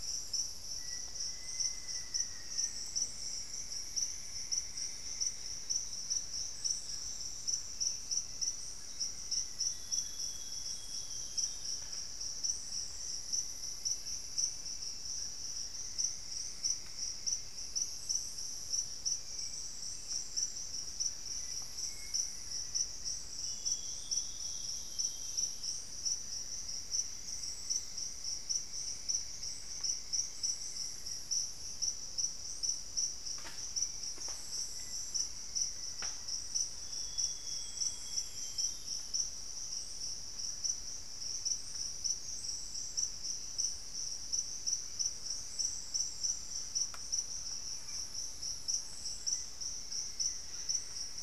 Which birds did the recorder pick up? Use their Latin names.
Formicarius analis, Dendrexetastes rufigula, Cyanoloxia rothschildii, Philydor pyrrhodes, Myrmelastes hyperythrus, Turdus hauxwelli, Sittasomus griseicapillus